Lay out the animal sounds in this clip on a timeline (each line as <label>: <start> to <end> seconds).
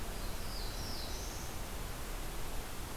Black-throated Blue Warbler (Setophaga caerulescens): 0.0 to 1.6 seconds